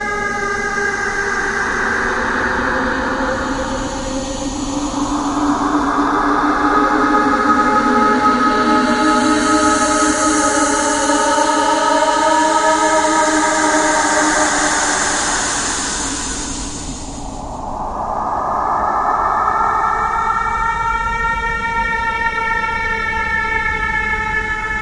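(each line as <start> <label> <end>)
0.0 A metallic monster growl. 16.8
6.4 A synthetic siren sounds. 16.3
18.0 A synthetic siren sounds. 24.8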